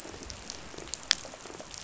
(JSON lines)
{"label": "biophony, pulse", "recorder": "SoundTrap 500"}